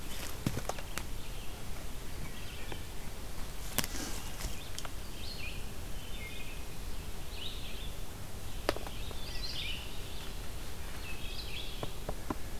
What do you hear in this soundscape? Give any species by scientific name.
Vireo olivaceus, Hylocichla mustelina